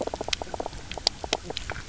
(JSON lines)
{"label": "biophony, knock croak", "recorder": "SoundTrap 300"}